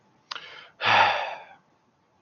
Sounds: Sigh